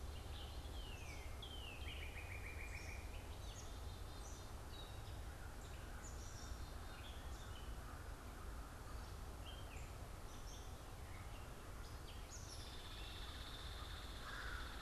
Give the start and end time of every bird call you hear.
0.0s-3.1s: Northern Cardinal (Cardinalis cardinalis)
0.0s-14.8s: Black-capped Chickadee (Poecile atricapillus)
0.0s-14.8s: Gray Catbird (Dumetella carolinensis)
12.1s-14.8s: Hairy Woodpecker (Dryobates villosus)
14.2s-14.8s: American Crow (Corvus brachyrhynchos)

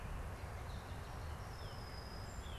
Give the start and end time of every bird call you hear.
0.5s-2.6s: Song Sparrow (Melospiza melodia)
1.1s-2.6s: Northern Cardinal (Cardinalis cardinalis)

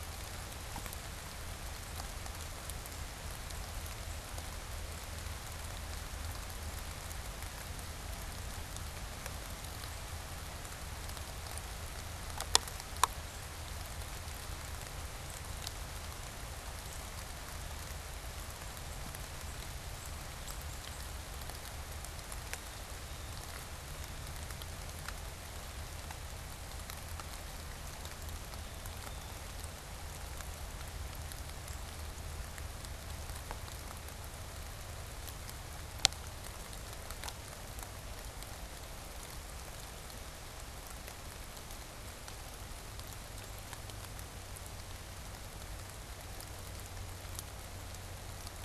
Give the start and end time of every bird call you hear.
18.4s-21.5s: unidentified bird
22.2s-29.8s: Blue Jay (Cyanocitta cristata)

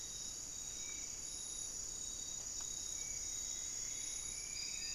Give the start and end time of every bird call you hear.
0.0s-4.9s: Spot-winged Antshrike (Pygiptila stellaris)
3.1s-4.9s: Striped Woodcreeper (Xiphorhynchus obsoletus)

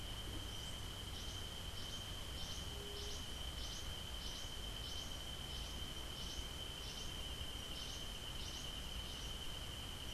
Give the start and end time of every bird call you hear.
0.7s-9.5s: Cabanis's Wren (Cantorchilus modestus)

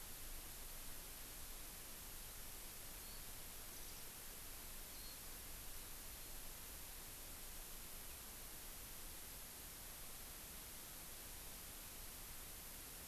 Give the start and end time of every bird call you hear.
3.0s-3.2s: Warbling White-eye (Zosterops japonicus)
3.7s-4.1s: Warbling White-eye (Zosterops japonicus)
4.9s-5.2s: Warbling White-eye (Zosterops japonicus)

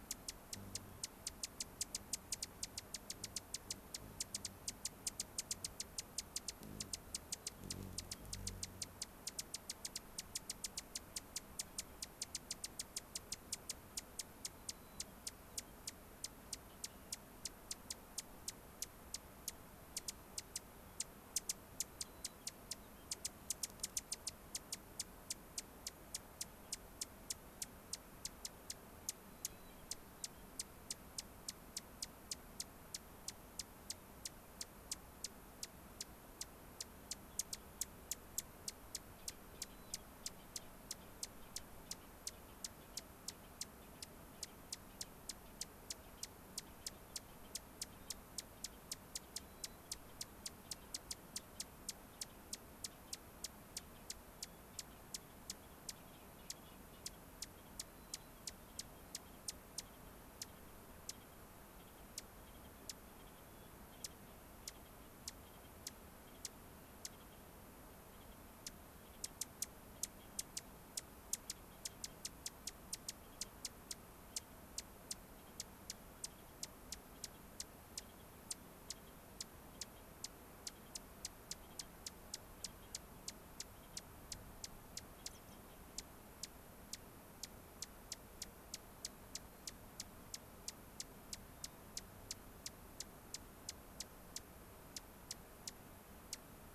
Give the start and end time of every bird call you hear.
14.6s-15.8s: White-crowned Sparrow (Zonotrichia leucophrys)
21.9s-23.1s: White-crowned Sparrow (Zonotrichia leucophrys)
29.3s-30.5s: White-crowned Sparrow (Zonotrichia leucophrys)
39.5s-40.7s: White-crowned Sparrow (Zonotrichia leucophrys)
48.0s-48.3s: White-crowned Sparrow (Zonotrichia leucophrys)
49.4s-49.8s: White-crowned Sparrow (Zonotrichia leucophrys)
57.9s-59.1s: White-crowned Sparrow (Zonotrichia leucophrys)
63.4s-63.8s: White-crowned Sparrow (Zonotrichia leucophrys)
70.2s-70.5s: White-crowned Sparrow (Zonotrichia leucophrys)
85.3s-85.7s: unidentified bird
91.6s-91.9s: White-crowned Sparrow (Zonotrichia leucophrys)

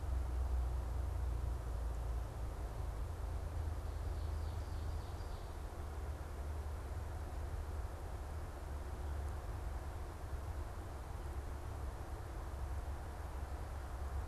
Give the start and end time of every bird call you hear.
3.9s-5.6s: Ovenbird (Seiurus aurocapilla)

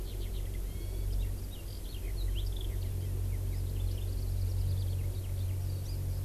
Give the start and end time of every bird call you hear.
0.0s-6.2s: Eurasian Skylark (Alauda arvensis)
5.8s-5.9s: Hawaii Amakihi (Chlorodrepanis virens)

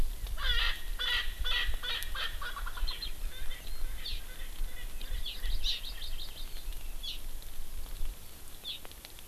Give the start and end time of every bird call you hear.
0.4s-3.0s: Erckel's Francolin (Pternistis erckelii)
3.3s-6.1s: Erckel's Francolin (Pternistis erckelii)
5.3s-6.5s: Hawaii Amakihi (Chlorodrepanis virens)

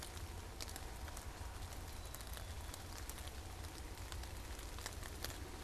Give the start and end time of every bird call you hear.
1.8s-2.9s: Black-capped Chickadee (Poecile atricapillus)

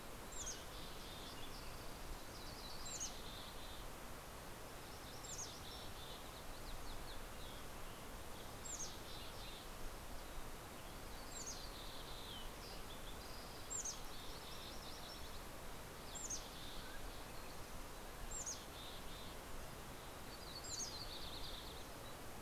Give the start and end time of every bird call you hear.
0.0s-2.3s: Mountain Quail (Oreortyx pictus)
0.0s-21.3s: Mountain Chickadee (Poecile gambeli)
0.8s-4.4s: Yellow-rumped Warbler (Setophaga coronata)
11.7s-16.4s: MacGillivray's Warbler (Geothlypis tolmiei)
16.4s-17.7s: Mountain Quail (Oreortyx pictus)
19.7s-22.4s: Yellow-rumped Warbler (Setophaga coronata)

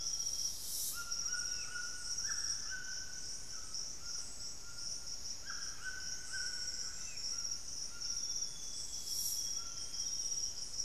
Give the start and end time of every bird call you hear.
0.0s-1.2s: Amazonian Grosbeak (Cyanoloxia rothschildii)
0.0s-10.8s: White-throated Toucan (Ramphastos tucanus)
1.3s-7.6s: Hauxwell's Thrush (Turdus hauxwelli)
2.5s-10.8s: Golden-crowned Spadebill (Platyrinchus coronatus)
5.5s-7.6s: unidentified bird
7.8s-10.8s: Amazonian Grosbeak (Cyanoloxia rothschildii)

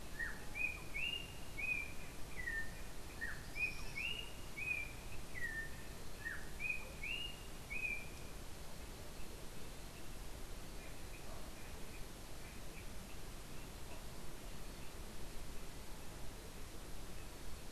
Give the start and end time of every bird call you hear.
0.0s-8.4s: Yellow-backed Oriole (Icterus chrysater)
3.2s-4.1s: Tropical Kingbird (Tyrannus melancholicus)

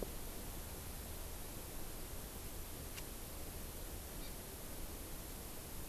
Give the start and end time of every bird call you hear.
4.2s-4.3s: Hawaii Amakihi (Chlorodrepanis virens)

